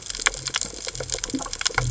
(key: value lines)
label: biophony
recorder: HydroMoth